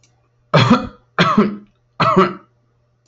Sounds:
Cough